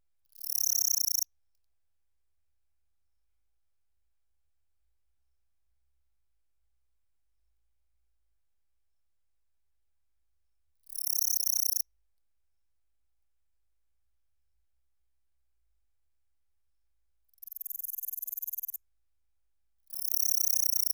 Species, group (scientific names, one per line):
Pholidoptera littoralis
Orthoptera